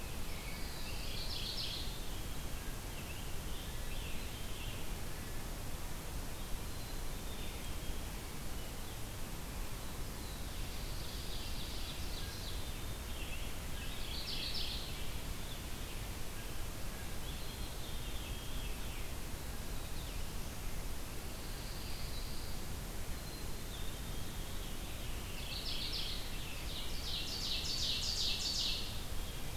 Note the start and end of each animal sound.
0.0s-1.2s: American Robin (Turdus migratorius)
0.9s-2.0s: Mourning Warbler (Geothlypis philadelphia)
2.8s-5.0s: American Robin (Turdus migratorius)
6.5s-8.1s: Black-capped Chickadee (Poecile atricapillus)
10.7s-12.8s: Ovenbird (Seiurus aurocapilla)
12.3s-16.2s: American Robin (Turdus migratorius)
13.6s-15.0s: Mourning Warbler (Geothlypis philadelphia)
17.2s-18.2s: Black-capped Chickadee (Poecile atricapillus)
21.3s-22.7s: Pine Warbler (Setophaga pinus)
23.0s-24.4s: Black-capped Chickadee (Poecile atricapillus)
24.0s-25.5s: Veery (Catharus fuscescens)
25.3s-26.3s: Mourning Warbler (Geothlypis philadelphia)
26.5s-29.0s: Ovenbird (Seiurus aurocapilla)

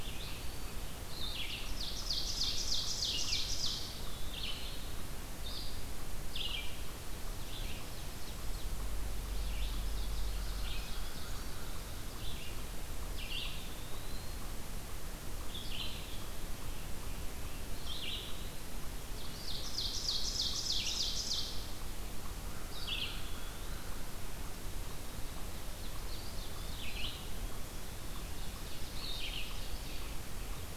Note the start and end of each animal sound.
0.0s-30.8s: Red-eyed Vireo (Vireo olivaceus)
1.4s-4.1s: Ovenbird (Seiurus aurocapilla)
3.7s-4.9s: Eastern Wood-Pewee (Contopus virens)
7.6s-8.7s: Ovenbird (Seiurus aurocapilla)
9.5s-11.4s: Ovenbird (Seiurus aurocapilla)
13.1s-14.5s: Eastern Wood-Pewee (Contopus virens)
19.0s-22.0s: Ovenbird (Seiurus aurocapilla)
22.4s-24.2s: American Crow (Corvus brachyrhynchos)
22.4s-24.1s: Eastern Wood-Pewee (Contopus virens)
25.4s-27.2s: Ovenbird (Seiurus aurocapilla)
25.7s-27.6s: Eastern Wood-Pewee (Contopus virens)
28.0s-30.1s: Ovenbird (Seiurus aurocapilla)

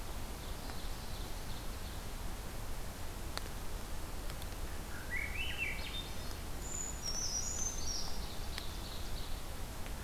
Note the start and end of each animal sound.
0.3s-2.1s: Ovenbird (Seiurus aurocapilla)
4.7s-6.4s: Swainson's Thrush (Catharus ustulatus)
6.6s-8.2s: Brown Creeper (Certhia americana)
7.9s-9.5s: Ovenbird (Seiurus aurocapilla)

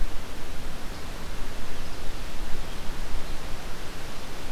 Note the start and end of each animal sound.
0.0s-4.5s: Red-eyed Vireo (Vireo olivaceus)

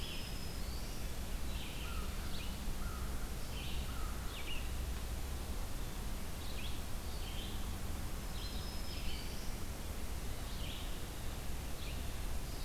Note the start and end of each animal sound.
0.0s-1.1s: Black-throated Green Warbler (Setophaga virens)
0.0s-12.6s: Red-eyed Vireo (Vireo olivaceus)
1.7s-4.3s: American Crow (Corvus brachyrhynchos)
8.2s-9.8s: Black-throated Green Warbler (Setophaga virens)

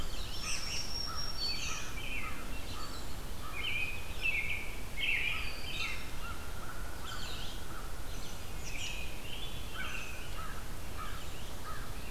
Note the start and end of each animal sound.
0.3s-3.6s: American Crow (Corvus brachyrhynchos)
0.3s-0.9s: American Robin (Turdus migratorius)
0.4s-1.9s: Black-throated Green Warbler (Setophaga virens)
1.3s-3.1s: American Robin (Turdus migratorius)
3.5s-6.1s: American Robin (Turdus migratorius)
5.2s-8.3s: American Crow (Corvus brachyrhynchos)
6.9s-7.6s: American Robin (Turdus migratorius)
7.9s-10.2s: American Robin (Turdus migratorius)
9.7s-12.1s: American Crow (Corvus brachyrhynchos)
10.8s-12.1s: American Robin (Turdus migratorius)

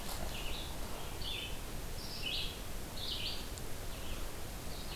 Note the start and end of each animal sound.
0.0s-5.0s: Red-eyed Vireo (Vireo olivaceus)

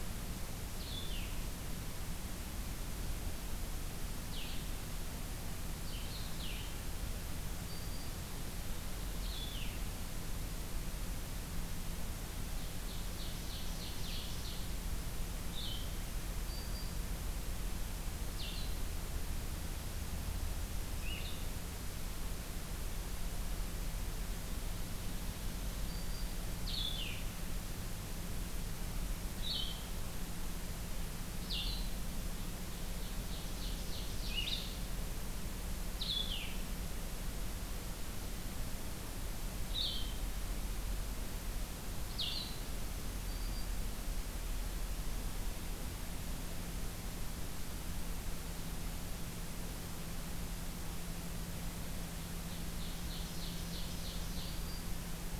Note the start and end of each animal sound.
0.0s-21.5s: Blue-headed Vireo (Vireo solitarius)
7.2s-8.2s: Black-throated Green Warbler (Setophaga virens)
12.5s-14.7s: Ovenbird (Seiurus aurocapilla)
16.3s-17.1s: Black-throated Green Warbler (Setophaga virens)
25.3s-26.5s: Black-throated Green Warbler (Setophaga virens)
26.6s-42.5s: Blue-headed Vireo (Vireo solitarius)
32.3s-34.7s: Ovenbird (Seiurus aurocapilla)
42.5s-43.8s: Black-throated Green Warbler (Setophaga virens)
52.3s-54.5s: Ovenbird (Seiurus aurocapilla)
53.9s-55.0s: Black-throated Green Warbler (Setophaga virens)

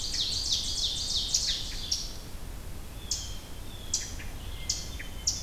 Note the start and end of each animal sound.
0.0s-2.1s: Ovenbird (Seiurus aurocapilla)
0.0s-5.4s: Eastern Chipmunk (Tamias striatus)
2.9s-5.3s: Blue Jay (Cyanocitta cristata)
4.4s-5.4s: Hermit Thrush (Catharus guttatus)

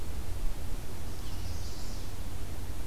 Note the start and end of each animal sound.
0.9s-2.3s: Chestnut-sided Warbler (Setophaga pensylvanica)

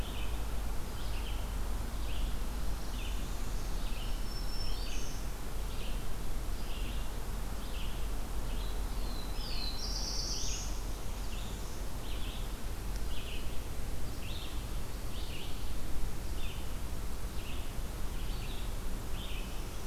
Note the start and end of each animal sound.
0.0s-19.9s: Red-eyed Vireo (Vireo olivaceus)
2.5s-3.8s: Northern Parula (Setophaga americana)
3.7s-5.3s: Black-throated Green Warbler (Setophaga virens)
8.8s-10.8s: Black-throated Blue Warbler (Setophaga caerulescens)
10.7s-11.9s: Northern Parula (Setophaga americana)

